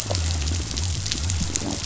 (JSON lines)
{"label": "biophony", "recorder": "SoundTrap 500"}